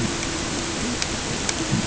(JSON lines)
{"label": "ambient", "recorder": "HydroMoth"}